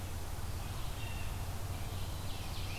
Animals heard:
Blue Jay (Cyanocitta cristata), Ovenbird (Seiurus aurocapilla), Red-eyed Vireo (Vireo olivaceus)

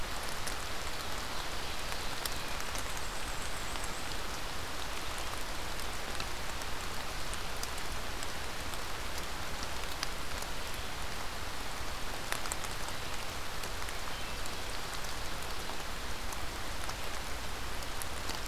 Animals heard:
Black-and-white Warbler (Mniotilta varia), Ovenbird (Seiurus aurocapilla)

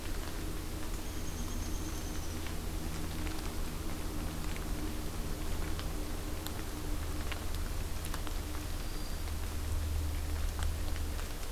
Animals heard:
Black-throated Green Warbler (Setophaga virens), Downy Woodpecker (Dryobates pubescens)

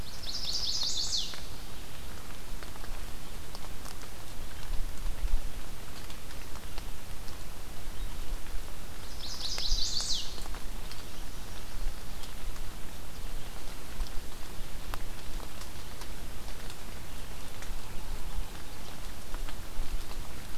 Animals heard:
Chestnut-sided Warbler (Setophaga pensylvanica)

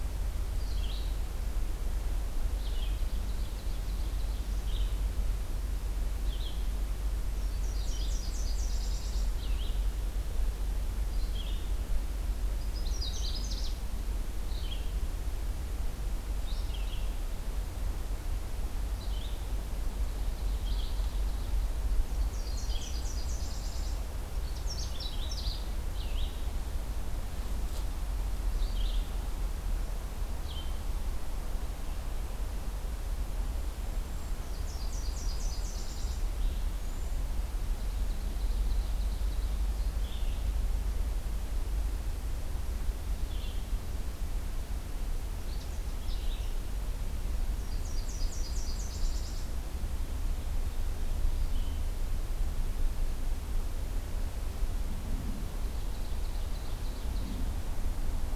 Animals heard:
Red-eyed Vireo (Vireo olivaceus), Cedar Waxwing (Bombycilla cedrorum), Nashville Warbler (Leiothlypis ruficapilla), Canada Warbler (Cardellina canadensis), Ovenbird (Seiurus aurocapilla)

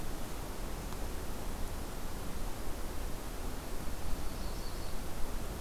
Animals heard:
Yellow-rumped Warbler (Setophaga coronata)

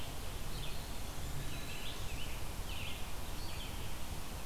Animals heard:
Eastern Wood-Pewee (Contopus virens), American Robin (Turdus migratorius), Wood Thrush (Hylocichla mustelina)

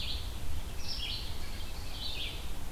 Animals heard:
Red-eyed Vireo (Vireo olivaceus), Ovenbird (Seiurus aurocapilla)

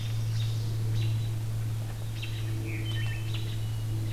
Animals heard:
Hermit Thrush (Catharus guttatus), American Robin (Turdus migratorius)

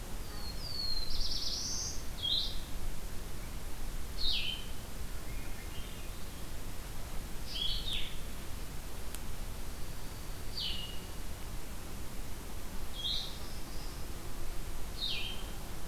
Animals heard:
Swainson's Thrush (Catharus ustulatus), Dark-eyed Junco (Junco hyemalis), Black-throated Blue Warbler (Setophaga caerulescens), Blue-headed Vireo (Vireo solitarius)

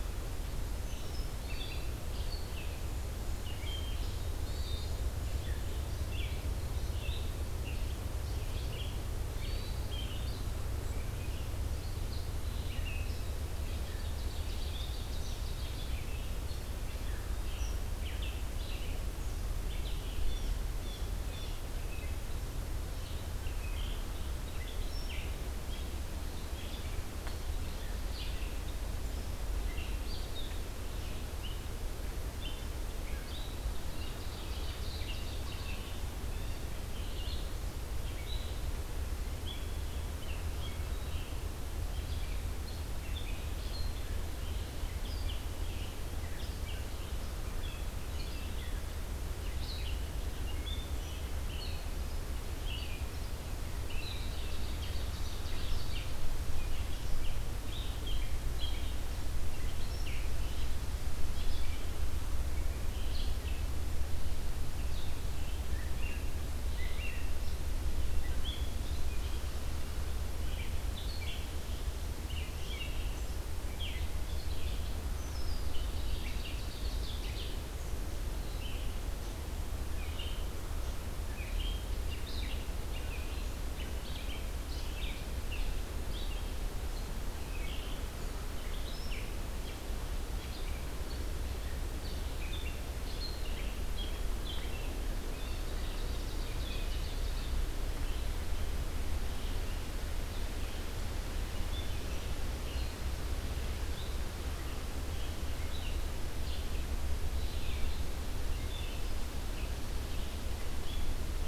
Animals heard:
Ovenbird (Seiurus aurocapilla), Blue Jay (Cyanocitta cristata), Red-eyed Vireo (Vireo olivaceus), Hermit Thrush (Catharus guttatus)

